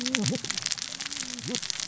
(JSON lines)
{"label": "biophony, cascading saw", "recorder": "SoundTrap 600 or HydroMoth"}